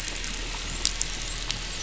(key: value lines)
label: biophony, dolphin
recorder: SoundTrap 500